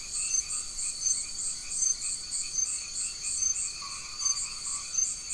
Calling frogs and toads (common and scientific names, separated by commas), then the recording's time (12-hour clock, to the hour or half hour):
white-edged tree frog (Boana albomarginata)
~9pm